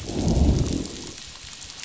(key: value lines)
label: biophony, growl
recorder: SoundTrap 500